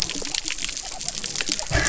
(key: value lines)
label: biophony
recorder: SoundTrap 300